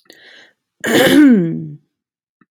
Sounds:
Throat clearing